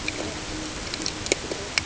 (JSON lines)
{"label": "ambient", "recorder": "HydroMoth"}